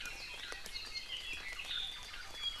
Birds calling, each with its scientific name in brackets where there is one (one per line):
Apapane (Himatione sanguinea)